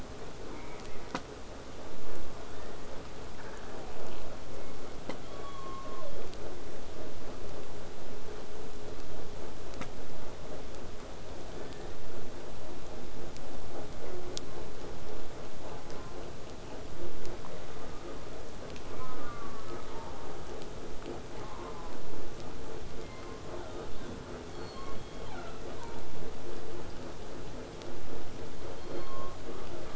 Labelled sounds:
0.4	1.3	killer whale, southern resident, J pod, call S04, 0.24 to 2.5 kHz
2.5	2.9	killer whale, southern resident, 0.60 to 3.7 kHz
5.2	6.3	killer whale, southern resident, J pod, 0.87 to 4.6 kHz
14.2	14.7	killer whale, southern resident, J pod, call S04, 0.40 to 1.8 kHz
15.8	16.3	killer whale, southern resident, J pod, call S04, 0.40 to 1.5 kHz
18.9	20.6	killer whale, southern resident, J pod, call S04, 0.40 to 2.4 kHz
21.3	22.0	killer whale, southern resident, J pod, call S04, 0.64 to 1.7 kHz
23.0	26.1	killer whale, southern resident, J pod, call S07, 0.52 to 4.5 kHz
28.5	29.9	killer whale, southern resident, J pod, call S03, 0.91 to 4.4 kHz

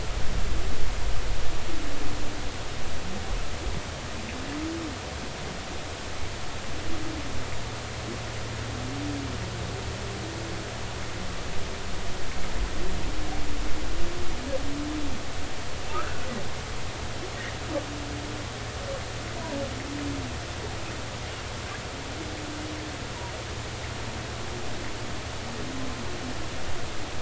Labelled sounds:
15.9	16.3	humpback whale, 1.2 to 1.7 kHz

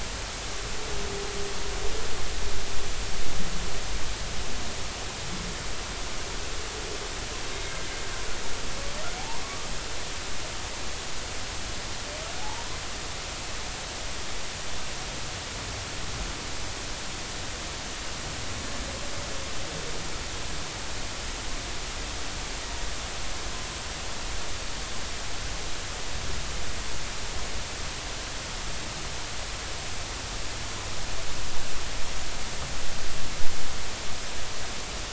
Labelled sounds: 7.5	7.8	humpback whale, 2.0 to 2.2 kHz
10.4	10.7	humpback whale, 1.1 to 1.3 kHz
12.4	12.7	humpback whale, 0.80 to 0.99 kHz

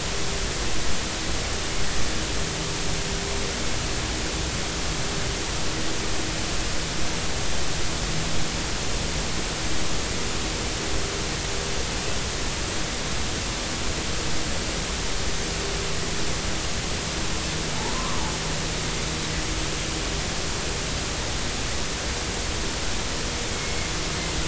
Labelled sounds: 17.8	18.2	humpback whale, 0.83 to 1.2 kHz
23.5	23.9	Pacific white-sided dolphin, 2.1 to 2.2 kHz

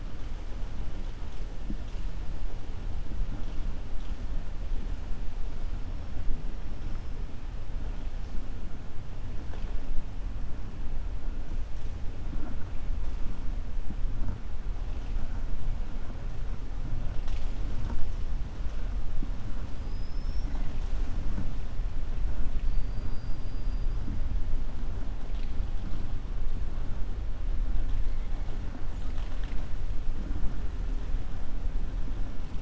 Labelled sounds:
19.7	20.6	killer whale, 4.9 to 5.8 kHz

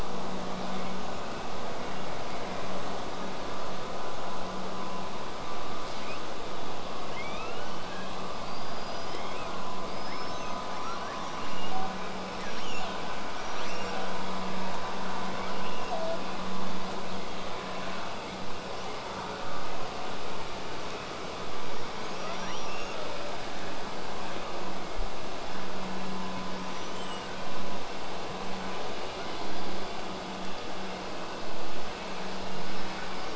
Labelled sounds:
5.8	6.2	killer whale, southern resident, call S08i, 1.6 to 8.0 kHz
7.0	8.1	killer whale, southern resident, 1.1 to 8.0 kHz
8.4	9.6	killer whale, southern resident, L pod, call S19, 1.9 to 8.0 kHz
10.7	12.0	killer whale, southern resident, L pod, call S02iii, 0.58 to 8.0 kHz
13.3	14.2	killer whale, southern resident, L pod, call S02iii, 0.39 to 8.0 kHz
15.3	16.2	killer whale, southern resident, L pod, call S02iii, 0.54 to 8.0 kHz
22.0	23.4	killer whale, southern resident, L pod, call S02iii, 0.92 to 8.0 kHz
26.6	27.4	killer whale, southern resident, 2.6 to 8.0 kHz

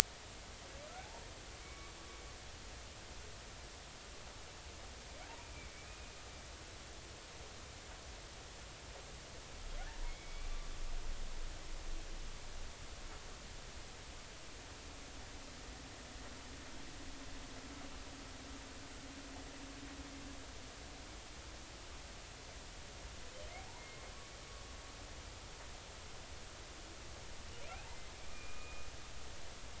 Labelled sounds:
1.0	1.9	humpback whale, 0.80 to 2.3 kHz
5.9	6.1	humpback whale, 2.4 to 2.5 kHz
10.0	10.5	humpback whale, 2.1 to 2.4 kHz
28.3	28.9	humpback whale, 1.2 to 2.5 kHz

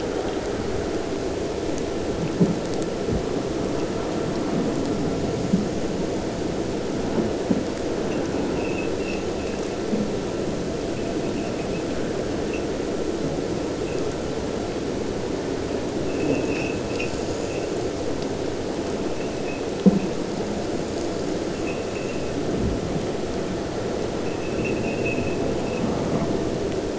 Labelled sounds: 24.4	25.4	abiotic sound, 2.0 to 3.4 kHz

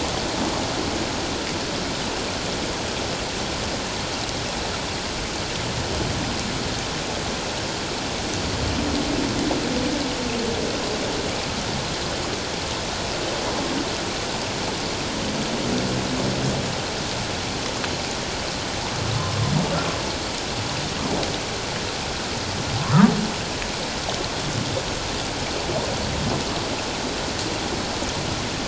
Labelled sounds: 22.8	23.1	humpback whale, 0.97 to 1.4 kHz

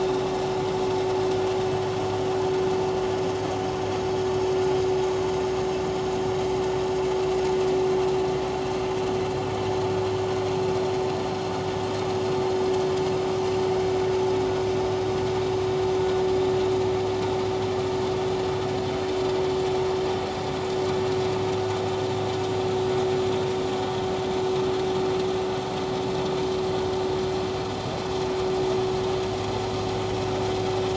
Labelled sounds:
4.6	4.9	vessel noise, 4.8 to 5.1 kHz

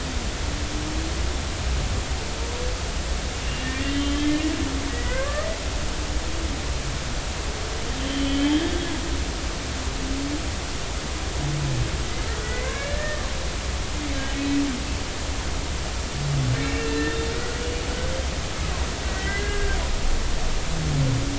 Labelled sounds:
3.6	4.3	humpback whale, 1.8 to 3.3 kHz
4.9	5.5	humpback whale, 0.96 to 2.2 kHz
8.0	8.8	humpback whale, 1.6 to 3.3 kHz
12.4	13.3	humpback whale, 1.1 to 2.3 kHz
16.6	17.2	humpback whale, 1.7 to 2.8 kHz
19.1	19.8	humpback whale, 1.5 to 2.1 kHz

